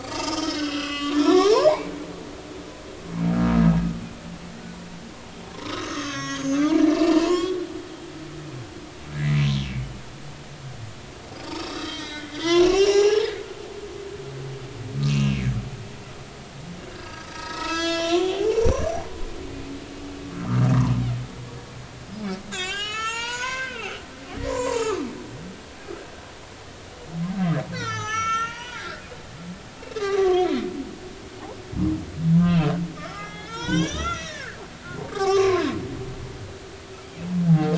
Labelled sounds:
0.0	1.7	humpback whale, 0.80 to 5.4 kHz
5.6	7.6	humpback whale, 0.93 to 6.8 kHz
11.5	13.7	humpback whale, 0.80 to 8.0 kHz
15.1	15.4	humpback whale, 2.4 to 2.9 kHz
16.9	19.0	humpback whale, 0.80 to 7.4 kHz
20.3	20.6	humpback whale, 1.1 to 1.4 kHz
22.5	23.9	humpback whale, 0.86 to 7.6 kHz
24.5	26.0	humpback whale, 0.83 to 7.6 kHz
27.7	29.0	humpback whale, 0.80 to 6.8 kHz
29.8	30.7	humpback whale, 0.80 to 2.8 kHz
33.0	34.6	humpback whale, 0.83 to 6.8 kHz
34.9	35.7	humpback whale, 0.90 to 5.9 kHz

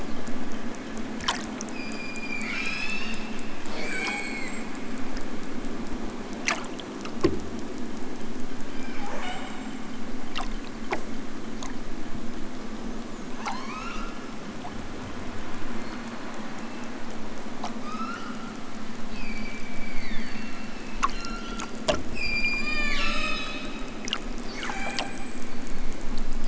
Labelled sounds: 1.7	3.1	killer whale, southern Alaska resident, 0.87 to 8.0 kHz
3.6	4.8	killer whale, southern Alaska resident, 0.50 to 8.0 kHz
8.6	10.0	killer whale, southern Alaska resident, 0.41 to 8.0 kHz
13.3	14.2	killer whale, southern Alaska resident, 0.37 to 8.0 kHz
15.7	17.0	killer whale, southern Alaska resident, 2.2 to 4.6 kHz
17.6	18.5	killer whale, southern Alaska resident, 0.73 to 7.3 kHz
19.1	20.5	killer whale, southern Alaska resident, 1.1 to 5.7 kHz
21.1	21.8	killer whale, southern Alaska resident, 0.96 to 8.0 kHz
22.1	23.5	killer whale, southern Alaska resident, 0.69 to 8.0 kHz
24.4	25.7	killer whale, southern Alaska resident, 0.37 to 8.0 kHz

